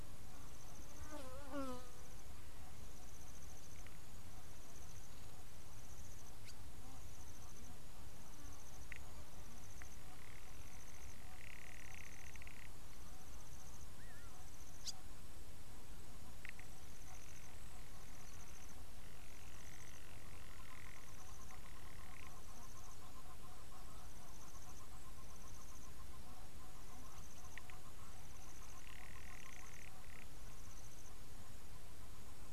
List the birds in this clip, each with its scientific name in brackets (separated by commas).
Egyptian Goose (Alopochen aegyptiaca), Garganey (Spatula querquedula)